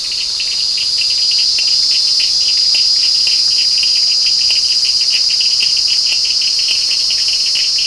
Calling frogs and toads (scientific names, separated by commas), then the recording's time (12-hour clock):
Sphaenorhynchus surdus
7:15pm